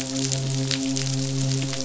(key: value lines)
label: biophony, midshipman
recorder: SoundTrap 500